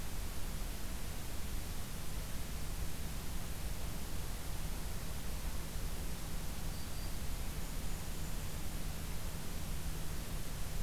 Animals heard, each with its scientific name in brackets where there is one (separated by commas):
Black-throated Green Warbler (Setophaga virens), Golden-crowned Kinglet (Regulus satrapa)